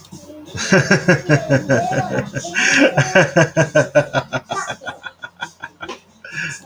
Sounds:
Laughter